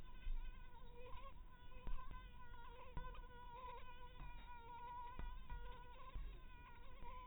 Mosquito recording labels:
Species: mosquito; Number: one; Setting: cup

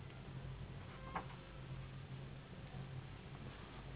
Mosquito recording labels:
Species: Anopheles gambiae s.s.; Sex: female; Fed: unfed; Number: one; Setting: insect culture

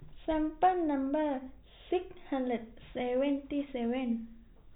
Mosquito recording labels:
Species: no mosquito; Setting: cup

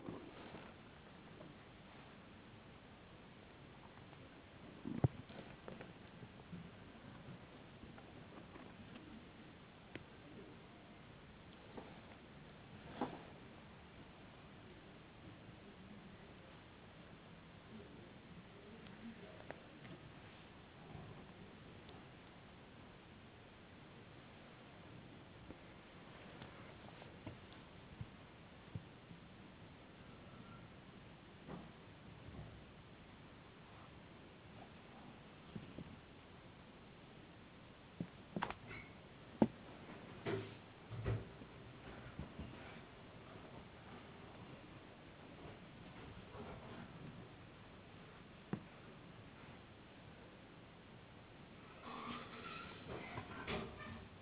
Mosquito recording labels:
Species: no mosquito; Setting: insect culture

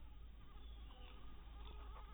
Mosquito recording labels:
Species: mosquito; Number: one; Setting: cup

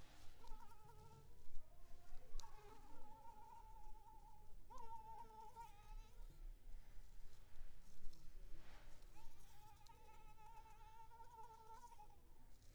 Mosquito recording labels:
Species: Anopheles arabiensis; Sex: female; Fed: unfed; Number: one; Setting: cup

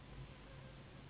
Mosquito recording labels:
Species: Anopheles gambiae s.s.; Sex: female; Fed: unfed; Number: one; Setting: insect culture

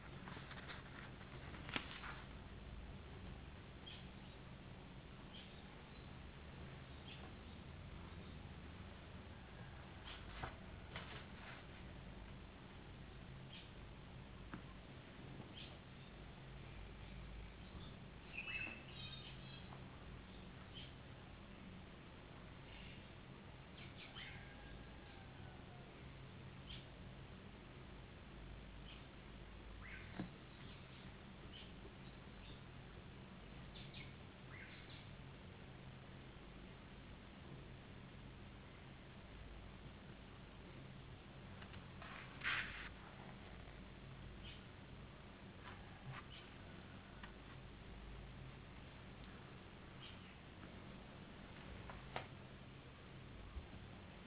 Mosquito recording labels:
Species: no mosquito; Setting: insect culture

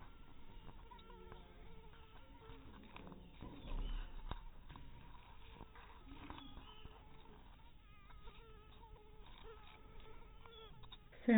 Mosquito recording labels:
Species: mosquito; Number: one; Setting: cup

